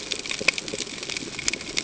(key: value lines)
label: ambient
recorder: HydroMoth